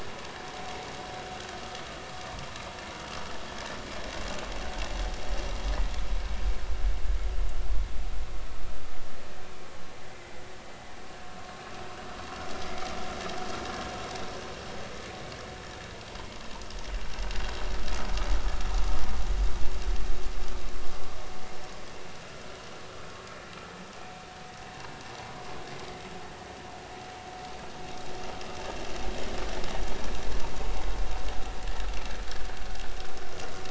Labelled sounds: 10.0	10.4	vessel noise, 1.9 to 2.1 kHz

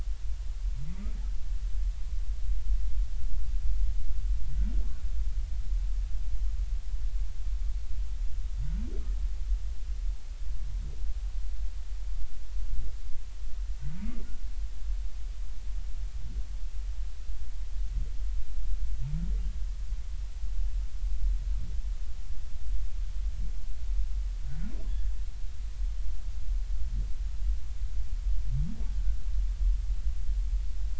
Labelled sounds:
0.9	1.1	humpback whale, 1.1 to 1.3 kHz

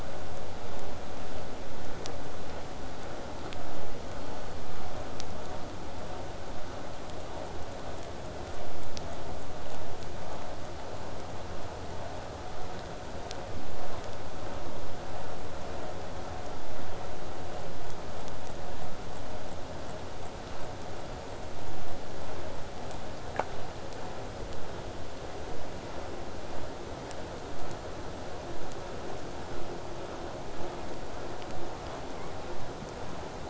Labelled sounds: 28.5	33.4	vessel noise, 0 to 8.0 kHz

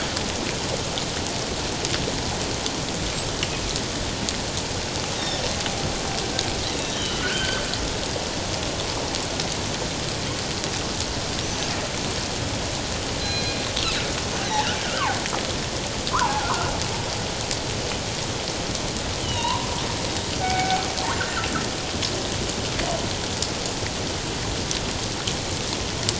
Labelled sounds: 5.2	5.4	killer whale, northern resident, G clan, 3.3 to 3.9 kHz
6.6	7.6	killer whale, northern resident, G clan, 1.4 to 4.1 kHz
11.4	11.7	killer whale, northern resident, G clan, 5.4 to 6.4 kHz
13.2	13.6	killer whale, northern resident, G clan, 1.6 to 4.2 kHz
14.8	15.2	killer whale, northern resident, G clan, 0.78 to 1.7 kHz
16.1	16.7	killer whale, northern resident, G clan, 0.78 to 1.6 kHz
19.2	19.7	killer whale, northern resident, G clan, 0.88 to 4.0 kHz
20.4	20.8	killer whale, northern resident, G clan, 0.78 to 2.6 kHz

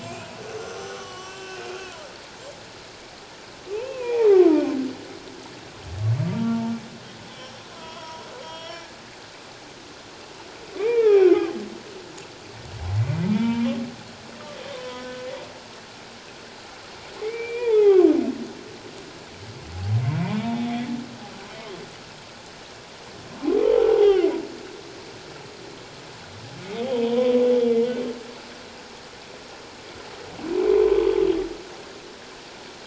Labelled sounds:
0.0	1.7	humpback whale, 1.1 to 7.6 kHz
3.7	4.8	humpback whale, 0.78 to 2.8 kHz
6.3	6.6	humpback whale, 1.3 to 1.4 kHz
7.3	8.8	humpback whale, 0.91 to 5.7 kHz
10.8	11.3	humpback whale, 0.78 to 2.8 kHz
13.3	13.8	humpback whale, 0.88 to 2.4 kHz
14.7	15.3	humpback whale, 0.94 to 3.1 kHz
17.2	18.1	humpback whale, 0.78 to 2.5 kHz
20.4	20.7	humpback whale, 3.4 to 3.8 kHz
23.9	24.3	humpback whale, 0.78 to 3.3 kHz
26.6	27.3	humpback whale, 0.91 to 3.3 kHz

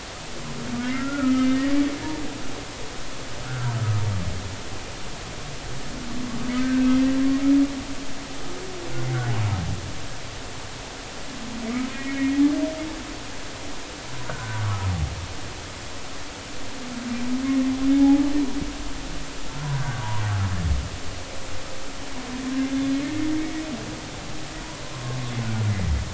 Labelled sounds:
0.8	1.6	humpback whale, 1.2 to 2.1 kHz
6.6	6.9	humpback whale, 1.5 to 1.9 kHz
11.9	12.4	humpback whale, 1.8 to 2.2 kHz
14.3	14.9	humpback whale, 0.99 to 1.6 kHz
17.9	18.2	humpback whale, 0.80 to 0.90 kHz
19.7	20.0	humpback whale, 1.4 to 1.7 kHz
24.9	25.2	humpback whale, 0.99 to 1.2 kHz

